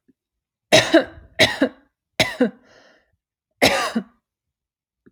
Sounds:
Cough